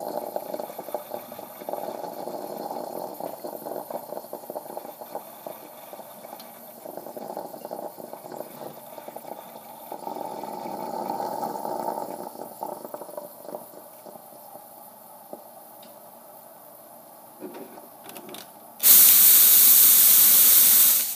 Is a fluid involved?
yes